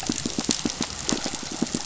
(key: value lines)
label: biophony, pulse
recorder: SoundTrap 500